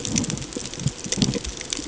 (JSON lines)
{"label": "ambient", "recorder": "HydroMoth"}